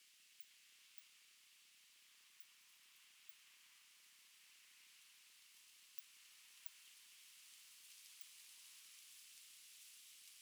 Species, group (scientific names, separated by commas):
Cyrtaspis scutata, Orthoptera